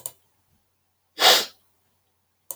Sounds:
Sniff